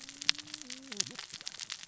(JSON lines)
{"label": "biophony, cascading saw", "recorder": "SoundTrap 600 or HydroMoth"}